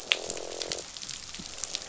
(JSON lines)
{"label": "biophony, croak", "recorder": "SoundTrap 500"}